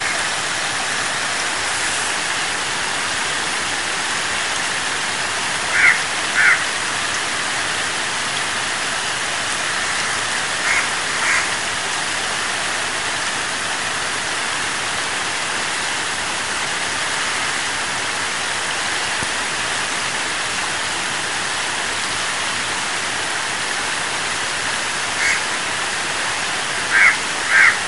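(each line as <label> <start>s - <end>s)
A stream of water flowing heavily and continuously in a river. 0.0s - 27.9s
A crow caws rhythmically and continuously near a river. 5.6s - 6.7s
A crow caws rhythmically and continuously near a river. 10.5s - 11.6s
A crow caws sharply near a river. 25.1s - 25.5s
A crow cawing sharply and continuously near a river. 26.8s - 27.9s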